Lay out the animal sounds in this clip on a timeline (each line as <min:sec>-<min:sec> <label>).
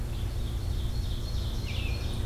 0:00.0-0:02.3 Ovenbird (Seiurus aurocapilla)
0:01.6-0:02.0 American Robin (Turdus migratorius)